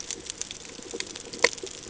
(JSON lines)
{"label": "ambient", "recorder": "HydroMoth"}